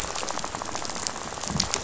{"label": "biophony, rattle", "recorder": "SoundTrap 500"}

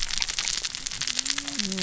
{"label": "biophony, cascading saw", "recorder": "SoundTrap 600 or HydroMoth"}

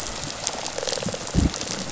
{"label": "biophony, rattle response", "recorder": "SoundTrap 500"}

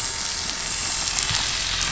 {"label": "anthrophony, boat engine", "recorder": "SoundTrap 500"}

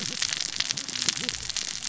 {"label": "biophony, cascading saw", "recorder": "SoundTrap 600 or HydroMoth"}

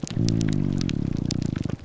{"label": "biophony, grouper groan", "recorder": "SoundTrap 300"}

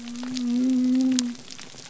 {"label": "biophony", "recorder": "SoundTrap 300"}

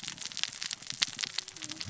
{"label": "biophony, cascading saw", "recorder": "SoundTrap 600 or HydroMoth"}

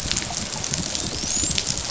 {"label": "biophony, dolphin", "recorder": "SoundTrap 500"}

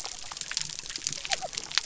{"label": "biophony", "recorder": "SoundTrap 300"}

